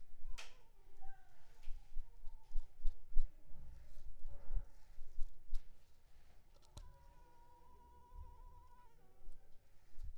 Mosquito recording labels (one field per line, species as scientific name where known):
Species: Culex pipiens complex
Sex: female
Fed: unfed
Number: one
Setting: cup